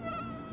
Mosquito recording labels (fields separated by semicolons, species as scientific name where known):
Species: Aedes aegypti; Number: one; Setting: insect culture